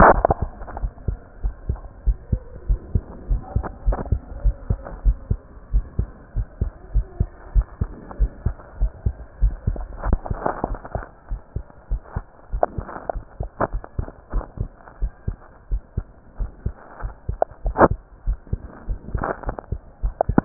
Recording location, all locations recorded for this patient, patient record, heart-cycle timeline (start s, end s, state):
pulmonary valve (PV)
aortic valve (AV)+pulmonary valve (PV)+tricuspid valve (TV)+mitral valve (MV)
#Age: Child
#Sex: Male
#Height: 127.0 cm
#Weight: 26.1 kg
#Pregnancy status: False
#Murmur: Absent
#Murmur locations: nan
#Most audible location: nan
#Systolic murmur timing: nan
#Systolic murmur shape: nan
#Systolic murmur grading: nan
#Systolic murmur pitch: nan
#Systolic murmur quality: nan
#Diastolic murmur timing: nan
#Diastolic murmur shape: nan
#Diastolic murmur grading: nan
#Diastolic murmur pitch: nan
#Diastolic murmur quality: nan
#Outcome: Normal
#Campaign: 2015 screening campaign
0.00	0.80	unannotated
0.80	0.92	S1
0.92	1.06	systole
1.06	1.20	S2
1.20	1.42	diastole
1.42	1.56	S1
1.56	1.66	systole
1.66	1.80	S2
1.80	2.04	diastole
2.04	2.18	S1
2.18	2.28	systole
2.28	2.40	S2
2.40	2.68	diastole
2.68	2.80	S1
2.80	2.92	systole
2.92	3.02	S2
3.02	3.28	diastole
3.28	3.42	S1
3.42	3.52	systole
3.52	3.64	S2
3.64	3.86	diastole
3.86	3.98	S1
3.98	4.10	systole
4.10	4.20	S2
4.20	4.42	diastole
4.42	4.56	S1
4.56	4.68	systole
4.68	4.78	S2
4.78	5.04	diastole
5.04	5.18	S1
5.18	5.28	systole
5.28	5.40	S2
5.40	5.72	diastole
5.72	5.86	S1
5.86	5.98	systole
5.98	6.10	S2
6.10	6.36	diastole
6.36	6.48	S1
6.48	6.60	systole
6.60	6.72	S2
6.72	6.94	diastole
6.94	7.08	S1
7.08	7.18	systole
7.18	7.28	S2
7.28	7.54	diastole
7.54	7.68	S1
7.68	7.80	systole
7.80	7.92	S2
7.92	8.18	diastole
8.18	8.32	S1
8.32	8.42	systole
8.42	8.54	S2
8.54	8.78	diastole
8.78	8.92	S1
8.92	9.04	systole
9.04	9.14	S2
9.14	9.40	diastole
9.40	9.56	S1
9.56	9.66	systole
9.66	9.82	S2
9.82	10.04	diastole
10.04	10.20	S1
10.20	10.28	systole
10.28	10.39	S2
10.39	10.68	diastole
10.68	10.80	S1
10.80	10.94	systole
10.94	11.04	S2
11.04	11.30	diastole
11.30	11.40	S1
11.40	11.54	systole
11.54	11.64	S2
11.64	11.90	diastole
11.90	12.02	S1
12.02	12.14	systole
12.14	12.24	S2
12.24	12.52	diastole
12.52	12.62	S1
12.62	12.76	systole
12.76	12.86	S2
12.86	13.14	diastole
13.14	13.24	S1
13.24	13.36	systole
13.36	13.46	S2
13.46	13.72	diastole
13.72	13.82	S1
13.82	13.94	systole
13.94	14.06	S2
14.06	14.32	diastole
14.32	14.44	S1
14.44	14.58	systole
14.58	14.72	S2
14.72	15.00	diastole
15.00	15.12	S1
15.12	15.26	systole
15.26	15.38	S2
15.38	15.70	diastole
15.70	15.82	S1
15.82	15.96	systole
15.96	16.06	S2
16.06	16.38	diastole
16.38	16.52	S1
16.52	16.64	systole
16.64	16.74	S2
16.74	17.02	diastole
17.02	17.14	S1
17.14	17.28	systole
17.28	17.40	S2
17.40	17.64	diastole
17.64	17.76	S1
17.76	20.45	unannotated